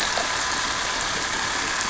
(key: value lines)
label: anthrophony, boat engine
recorder: SoundTrap 300